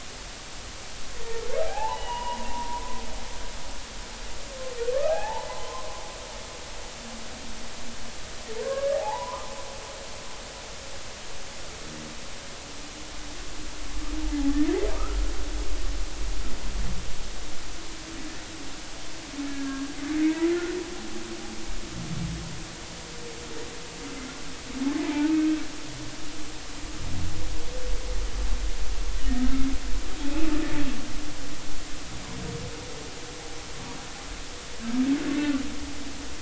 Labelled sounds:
1.6	3.0	humpback whale, 0.80 to 3.0 kHz
4.9	5.9	humpback whale, 0.80 to 1.8 kHz
8.6	9.5	humpback whale, 0.80 to 1.7 kHz
19.4	19.8	humpback whale, 1.5 to 1.8 kHz
29.4	29.7	humpback whale, 1.2 to 1.4 kHz
35.4	35.6	humpback whale, 1.3 to 1.5 kHz

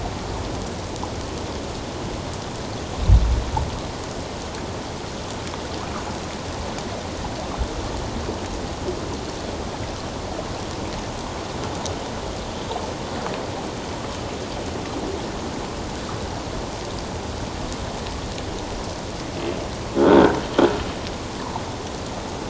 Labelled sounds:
20.0	20.4	croaking sound likely from a nearby submerged object, 1.3 to 3.8 kHz

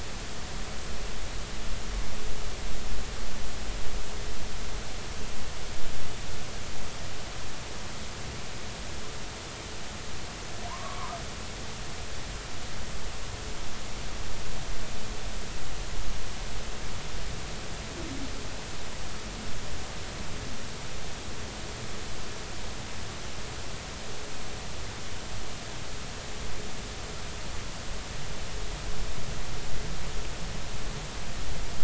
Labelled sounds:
10.7	11.2	humpback whale, 0.90 to 1.3 kHz

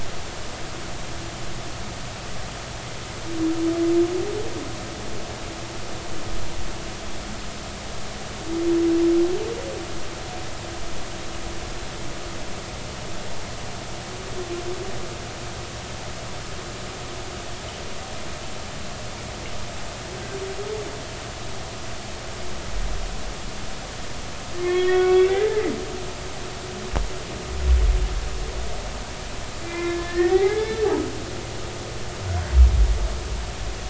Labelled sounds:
24.5	25.6	humpback whale, 1.1 to 3.6 kHz
29.6	30.9	humpback whale, 0.80 to 3.6 kHz

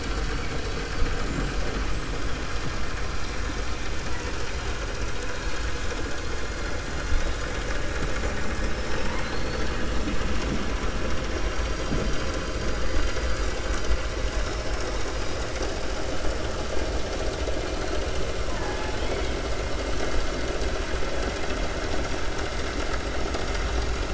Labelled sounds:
8.6	9.7	killer whale, 0.55 to 5.4 kHz

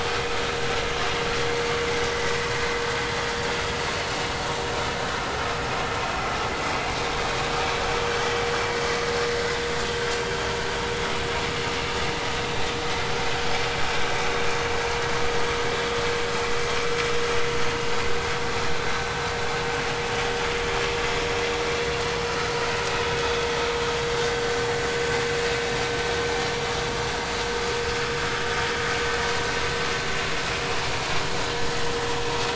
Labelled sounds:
12.5	12.7	vessel noise, 3.6 to 3.8 kHz

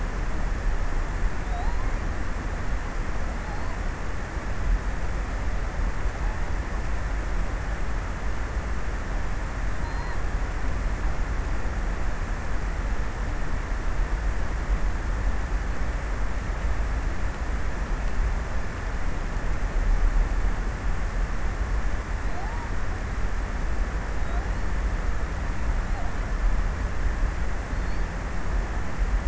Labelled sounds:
0.8	4.3	killer whale, offshore, 2.8 to 5.0 kHz
9.7	10.2	killer whale, offshore, 3.5 to 4.8 kHz
21.7	23.0	killer whale, offshore, 3.2 to 5.0 kHz
23.7	25.4	killer whale, offshore, 3.2 to 4.8 kHz
27.0	28.8	killer whale, offshore, 3.7 to 5.3 kHz

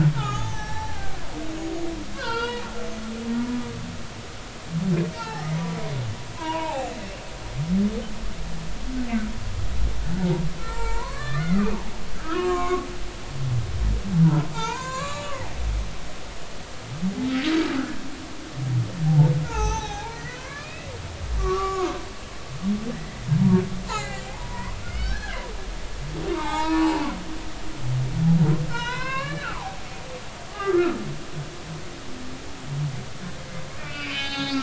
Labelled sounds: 0.2	1.2	humpback whale, 0.80 to 6.7 kHz
2.1	2.7	humpback whale, 0.86 to 4.8 kHz
3.4	3.6	humpback whale, 3.7 to 3.9 kHz
5.1	5.5	humpback whale, 0.80 to 5.6 kHz
6.3	6.9	humpback whale, 0.80 to 7.5 kHz
10.6	12.9	humpback whale, 0.83 to 7.5 kHz
14.5	15.4	humpback whale, 0.83 to 7.5 kHz
19.1	20.9	humpback whale, 0.80 to 6.3 kHz
21.4	23.2	humpback whale, 0.93 to 2.9 kHz
23.9	25.4	humpback whale, 0.80 to 4.3 kHz
26.3	27.8	humpback whale, 0.80 to 5.8 kHz
28.7	29.8	humpback whale, 0.80 to 5.3 kHz
30.5	31.0	humpback whale, 1.1 to 1.5 kHz
33.8	34.6	humpback whale, 0.80 to 5.0 kHz

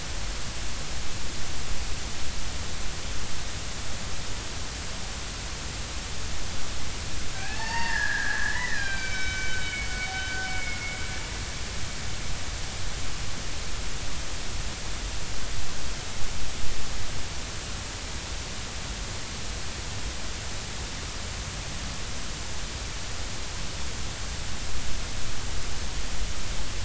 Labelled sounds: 7.3	11.0	killer whale, Bigg's (transient), call T12, 0.80 to 5.4 kHz

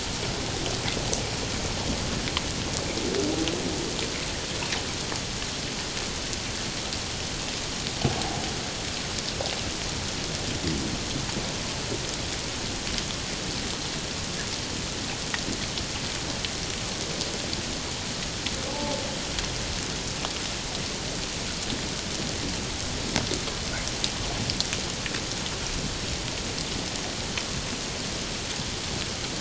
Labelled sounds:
18.7	19.0	humpback whale, 0.78 to 0.94 kHz

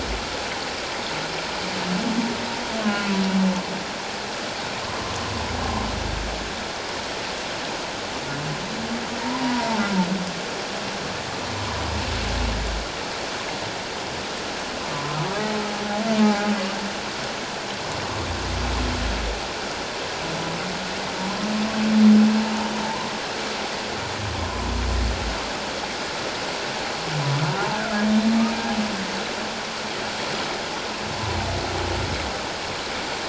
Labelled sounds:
2.8	3.1	humpback whale, 0.97 to 1.5 kHz
9.4	9.8	humpback whale, 0.84 to 1.0 kHz
11.6	11.8	humpback whale, 0.94 to 1.2 kHz
16.2	16.5	humpback whale, 0.78 to 0.88 kHz
22.8	23.1	humpback whale, 0.81 to 1.1 kHz
27.8	28.0	humpback whale, 1.2 to 1.7 kHz

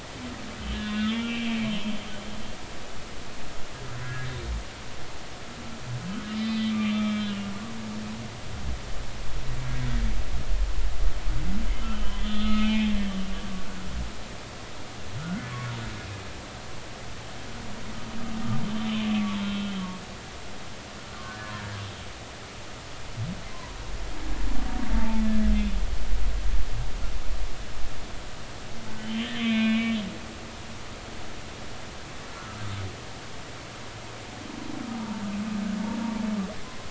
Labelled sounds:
0.6	1.7	humpback whale, 1.7 to 4.1 kHz
2.1	2.6	humpback whale, 2.2 to 2.5 kHz
4.0	4.3	humpback whale, 1.6 to 1.8 kHz
6.4	7.4	humpback whale, 1.1 to 4.1 kHz
11.9	12.9	humpback whale, 1.2 to 4.2 kHz
15.2	15.5	humpback whale, 1.3 to 1.6 kHz
21.6	21.8	humpback whale, 1.6 to 1.7 kHz
23.5	23.8	humpback whale, 0.90 to 1.2 kHz
24.9	25.5	humpback whale, 0.83 to 1.8 kHz
29.0	30.0	humpback whale, 1.1 to 4.1 kHz
32.3	32.6	humpback whale, 1.1 to 1.5 kHz

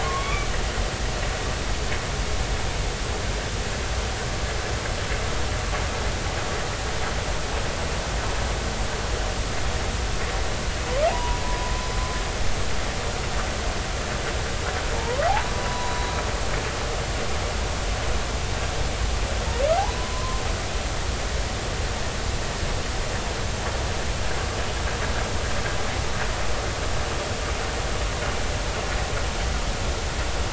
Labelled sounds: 0.0	0.5	humpback whale, 0.99 to 2.6 kHz
11.1	11.7	humpback whale, 0.80 to 1.0 kHz
15.3	16.1	humpback whale, 0.80 to 3.9 kHz
20.0	20.4	humpback whale, 0.96 to 1.1 kHz

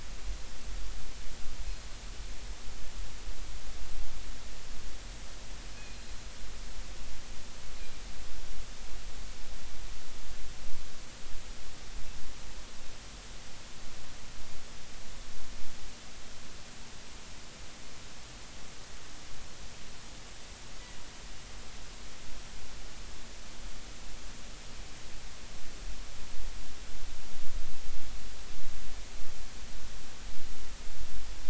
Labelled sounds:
5.8	6.1	killer whale, northern resident, G clan, 4.1 to 4.2 kHz

